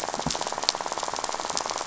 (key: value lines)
label: biophony, rattle
recorder: SoundTrap 500